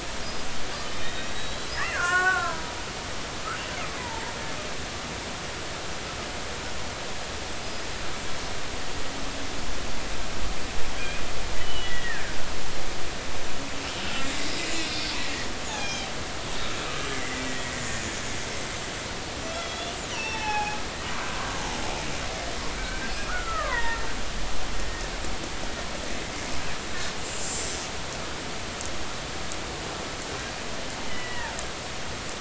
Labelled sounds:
0.9	2.7	killer whale, Bigg's (transient), 0.93 to 4.1 kHz
4.0	4.3	killer whale, Bigg's (transient), 0.83 to 1.0 kHz
7.6	7.9	killer whale, Bigg's (transient), 4.9 to 5.1 kHz
11.6	12.3	killer whale, Bigg's (transient), 1.4 to 3.4 kHz
14.0	14.5	killer whale, Bigg's (transient), 1.3 to 2.2 kHz
14.9	15.5	killer whale, Bigg's (transient), 1.8 to 4.6 kHz
15.8	16.1	killer whale, Bigg's (transient), 2.3 to 3.3 kHz
16.8	18.1	killer whale, Bigg's (transient), 1.1 to 2.2 kHz
19.5	21.6	killer whale, Bigg's (transient), 0.80 to 5.9 kHz
22.8	24.0	killer whale, Bigg's (transient), 0.86 to 2.4 kHz
31.1	31.5	killer whale, Bigg's (transient), 1.6 to 2.1 kHz

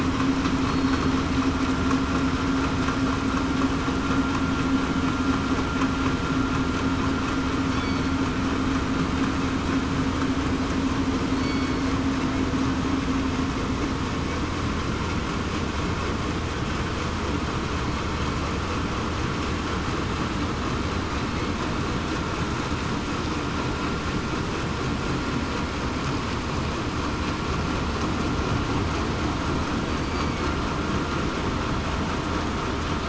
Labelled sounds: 0.6	1.1	killer whale, southern resident, 4.2 to 4.4 kHz
11.4	11.9	killer whale, southern resident, 2.2 to 4.5 kHz

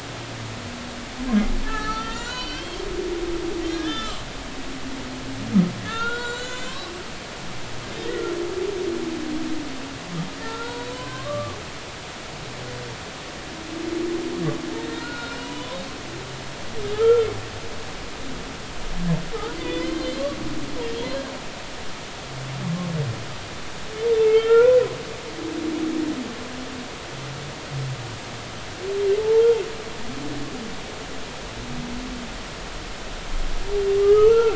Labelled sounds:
1.6	4.2	humpback whale, 0.90 to 5.9 kHz
5.8	6.9	humpback whale, 0.86 to 7.6 kHz
8.0	8.2	humpback whale, 1.8 to 2.0 kHz
10.4	11.6	humpback whale, 0.90 to 1.7 kHz
14.9	15.8	humpback whale, 0.93 to 5.3 kHz
16.9	17.3	humpback whale, 1.2 to 1.5 kHz
19.6	20.2	humpback whale, 1.9 to 3.6 kHz
24.2	24.9	humpback whale, 0.90 to 3.2 kHz
29.2	29.4	humpback whale, 0.83 to 0.96 kHz
34.0	34.5	humpback whale, 0.86 to 1.4 kHz

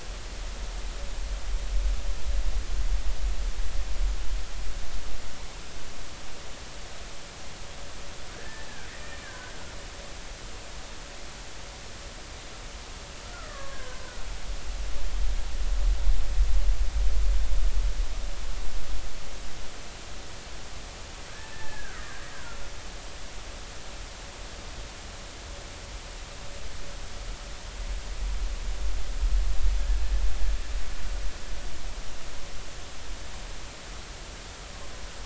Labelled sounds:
8.3	9.6	killer whale, Bigg's (transient), 1.4 to 1.9 kHz
13.3	14.2	killer whale, Bigg's (transient), 0.96 to 2.0 kHz
21.3	22.6	killer whale, Bigg's (transient), 1.3 to 1.8 kHz

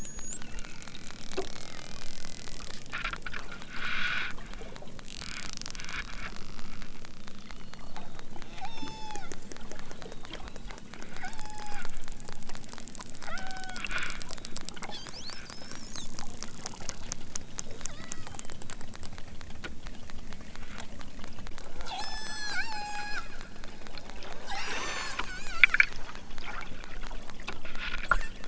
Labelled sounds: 7.2	9.2	killer whale, southern Alaska resident, 0.41 to 8.0 kHz
11.0	11.9	killer whale, southern Alaska resident, 0.41 to 5.5 kHz
13.0	13.8	killer whale, southern Alaska resident, 0.41 to 5.5 kHz
17.9	18.4	killer whale, southern Alaska resident, 0.69 to 5.3 kHz
21.8	23.4	killer whale, southern Alaska resident, 0.41 to 8.0 kHz
24.4	26.0	killer whale, southern Alaska resident, 0.23 to 8.0 kHz

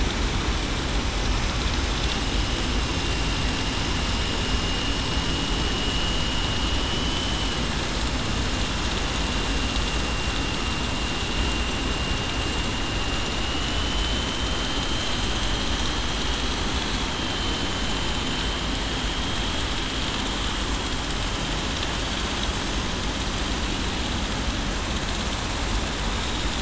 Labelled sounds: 6.9	7.5	vessel noise, 2.9 to 3.0 kHz
13.4	14.6	vessel noise, 2.9 to 3.1 kHz
16.2	16.6	vessel noise, 3.2 to 3.3 kHz
17.2	17.6	vessel noise, 3.0 to 3.2 kHz

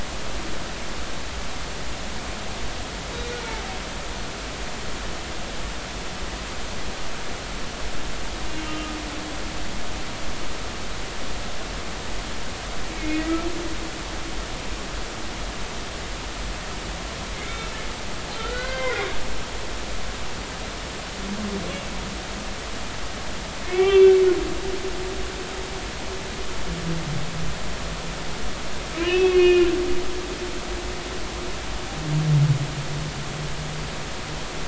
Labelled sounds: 8.6	9.0	humpback whale, 1.2 to 3.2 kHz
12.9	13.2	humpback whale, 2.1 to 2.3 kHz
17.3	17.7	humpback whale, 2.0 to 2.3 kHz
18.4	19.0	humpback whale, 1.3 to 2.2 kHz
23.6	24.1	humpback whale, 2.1 to 3.6 kHz
29.0	29.7	humpback whale, 1.7 to 4.7 kHz

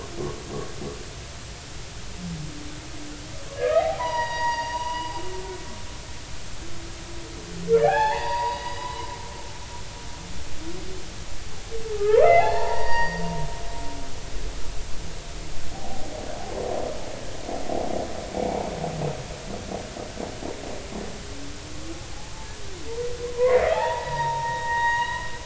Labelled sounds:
3.6	5.2	humpback whale, 0.80 to 6.7 kHz
7.7	9.1	humpback whale, 0.80 to 5.0 kHz
11.9	13.2	humpback whale, 0.80 to 4.8 kHz
15.7	16.1	humpback whale, 0.80 to 0.83 kHz
23.4	25.3	humpback whale, 0.80 to 4.0 kHz

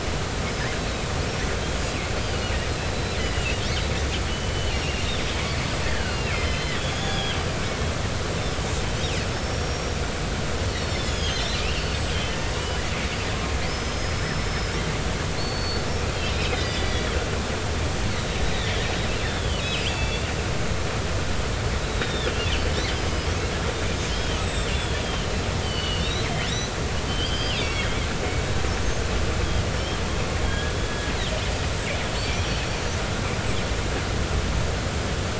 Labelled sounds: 0.8	1.0	killer whale, northern resident, 3.8 to 4.0 kHz
2.8	3.2	killer whale, northern resident, 3.9 to 4.1 kHz
4.3	4.7	killer whale, northern resident, 2.9 to 3.1 kHz
5.8	8.2	killer whale, northern resident, 1.3 to 6.7 kHz
9.5	9.9	killer whale, northern resident, 5.5 to 5.7 kHz
10.7	12.4	killer whale, northern resident, 2.3 to 7.4 kHz
13.7	14.7	killer whale, northern resident, 5.0 to 5.3 kHz
15.4	17.2	killer whale, northern resident, 1.9 to 5.3 kHz
18.1	18.8	killer whale, northern resident, 1.8 to 3.9 kHz
19.2	20.2	killer whale, northern resident, 2.5 to 5.2 kHz
20.9	22.7	killer whale, northern resident, 2.6 to 4.0 kHz
24.0	26.7	killer whale, northern resident, 2.6 to 7.9 kHz
27.1	28.0	killer whale, northern resident, 2.1 to 5.1 kHz
29.7	31.1	killer whale, northern resident, 1.5 to 5.5 kHz
31.9	32.6	killer whale, northern resident, 1.6 to 5.7 kHz

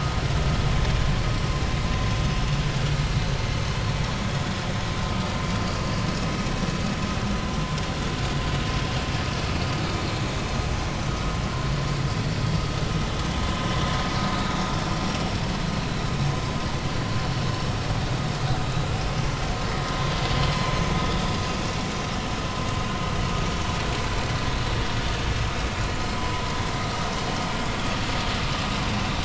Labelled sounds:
14.4	14.6	vessel noise, 3.6 to 3.9 kHz
26.2	26.4	vessel noise, 0.96 to 1.1 kHz

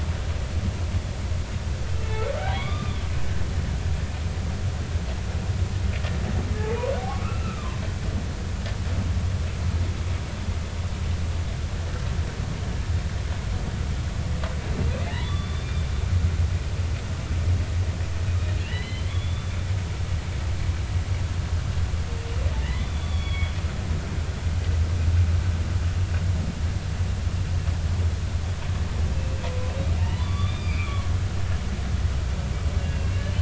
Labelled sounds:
2.0	3.0	humpback whale, 0.93 to 3.7 kHz
7.0	7.8	humpback whale, 0.80 to 2.8 kHz
15.1	15.9	humpback whale, 0.80 to 3.7 kHz
18.6	19.5	humpback whale, 1.7 to 4.2 kHz
22.6	23.5	humpback whale, 1.7 to 4.5 kHz
30.0	31.0	humpback whale, 1.1 to 4.9 kHz
31.5	33.2	humpback whale, 1.5 to 2.8 kHz

